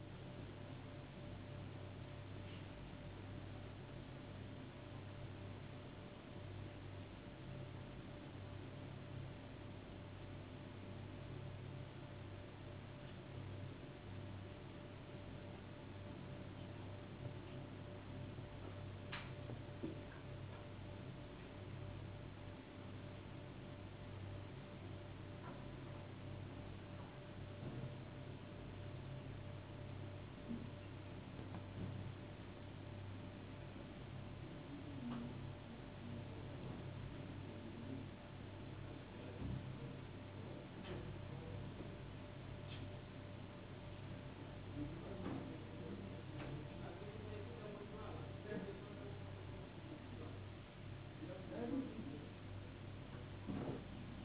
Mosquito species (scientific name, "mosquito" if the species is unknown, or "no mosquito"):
no mosquito